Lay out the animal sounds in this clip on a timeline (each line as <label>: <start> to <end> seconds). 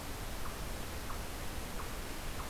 Eastern Chipmunk (Tamias striatus): 0.0 to 2.5 seconds